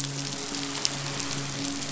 {"label": "biophony, midshipman", "recorder": "SoundTrap 500"}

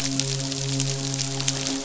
{"label": "biophony, midshipman", "recorder": "SoundTrap 500"}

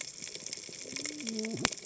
{"label": "biophony, cascading saw", "recorder": "HydroMoth"}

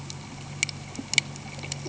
{"label": "anthrophony, boat engine", "recorder": "HydroMoth"}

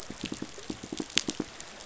{"label": "biophony, pulse", "recorder": "SoundTrap 500"}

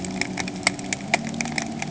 {"label": "anthrophony, boat engine", "recorder": "HydroMoth"}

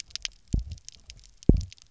{"label": "biophony, double pulse", "recorder": "SoundTrap 300"}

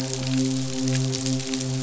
{"label": "biophony, midshipman", "recorder": "SoundTrap 500"}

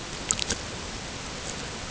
{"label": "ambient", "recorder": "HydroMoth"}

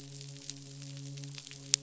{"label": "biophony, midshipman", "recorder": "SoundTrap 500"}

